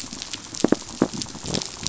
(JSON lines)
{"label": "biophony", "recorder": "SoundTrap 500"}